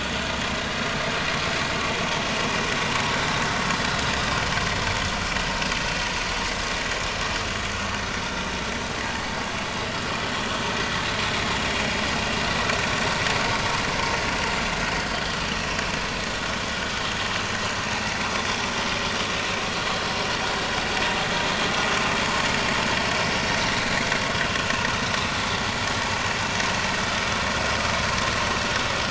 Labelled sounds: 2.6	2.8	vessel noise, 5.5 to 5.7 kHz

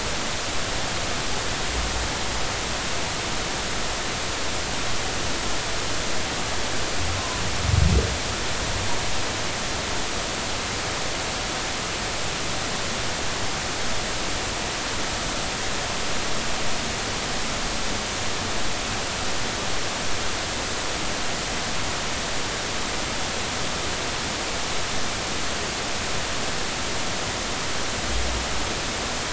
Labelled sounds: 7.2	7.4	humpback whale, 0.96 to 1.1 kHz

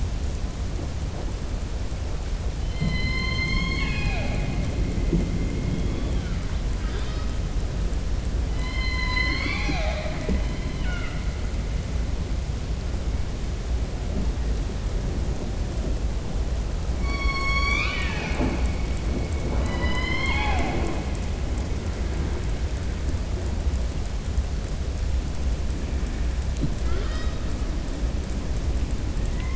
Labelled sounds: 2.6	4.6	killer whale, southern resident, 0.24 to 6.4 kHz
10.7	11.2	killer whale, southern resident, 0.76 to 3.5 kHz
17.0	18.6	killer whale, southern resident, 0.44 to 7.6 kHz
19.4	21.0	killer whale, southern resident, 0.32 to 7.6 kHz

